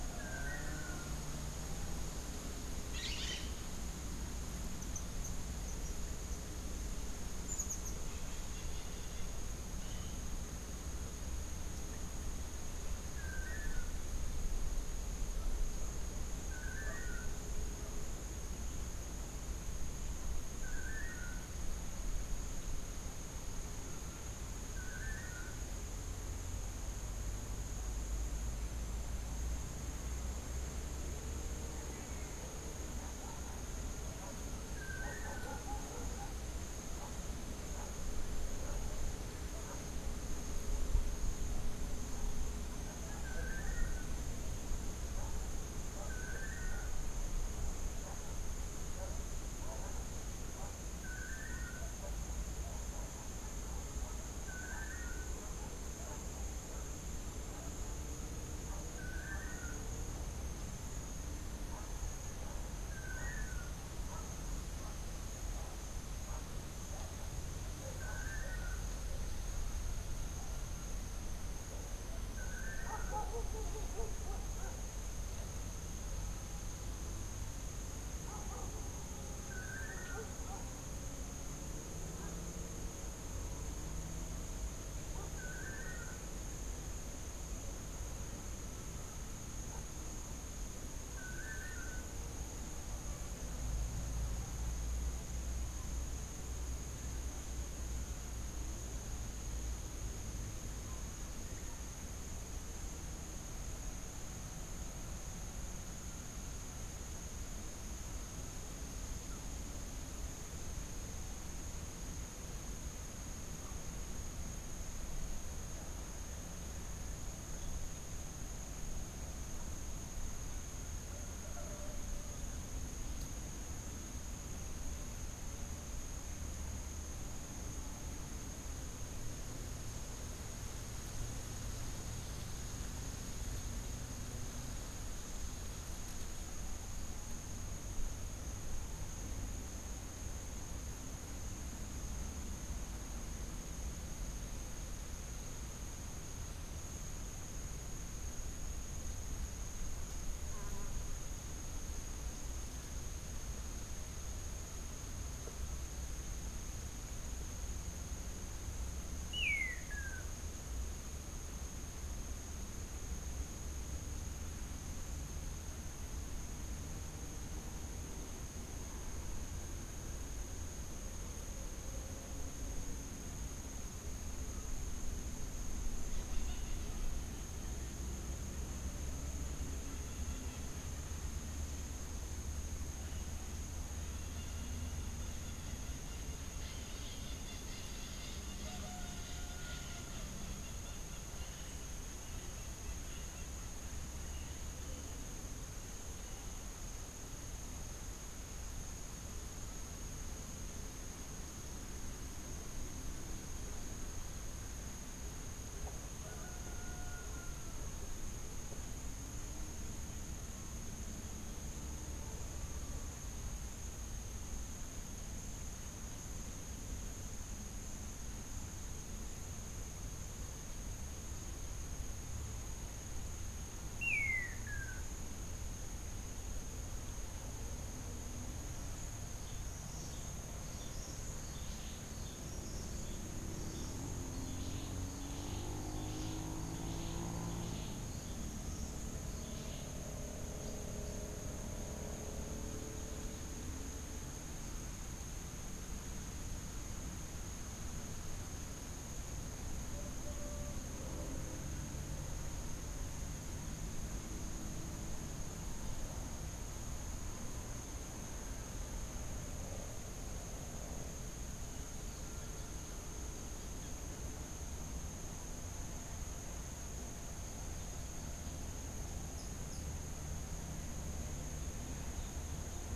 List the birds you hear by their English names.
Long-tailed Manakin, Crimson-fronted Parakeet, unidentified bird, Cabanis's Wren, Tennessee Warbler